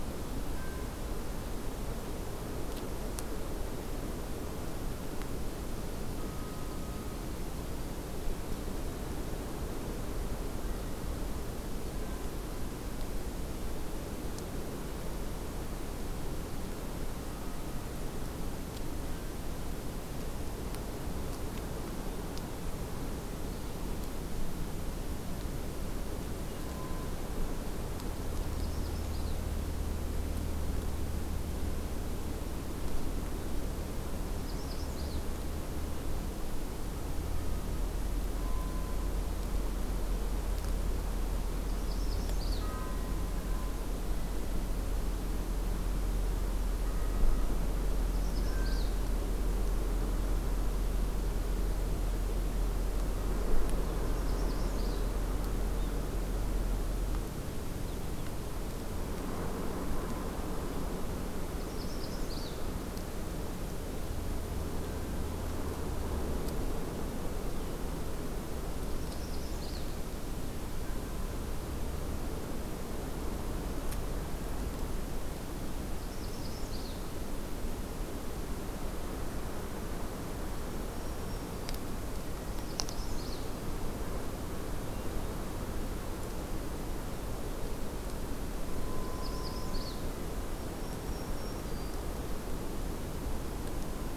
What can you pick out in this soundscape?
Magnolia Warbler, Black-throated Green Warbler